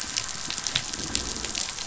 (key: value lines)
label: anthrophony, boat engine
recorder: SoundTrap 500

label: biophony
recorder: SoundTrap 500